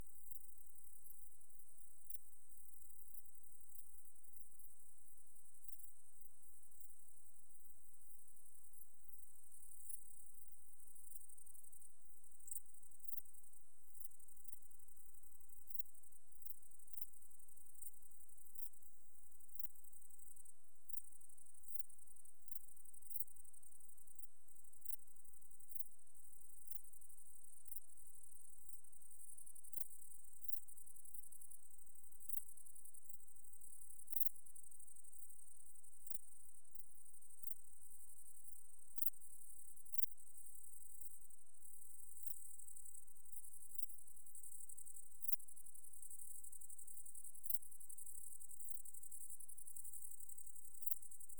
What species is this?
Pholidoptera femorata